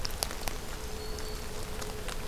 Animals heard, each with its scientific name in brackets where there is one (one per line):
Black-throated Green Warbler (Setophaga virens)